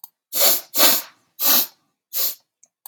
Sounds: Sniff